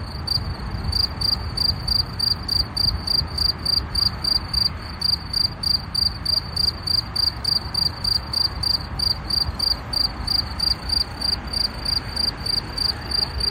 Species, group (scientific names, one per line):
Gryllus campestris
Orthoptera